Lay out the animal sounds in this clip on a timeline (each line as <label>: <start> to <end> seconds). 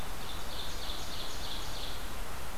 Ovenbird (Seiurus aurocapilla): 0.0 to 2.0 seconds